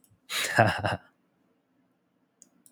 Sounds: Laughter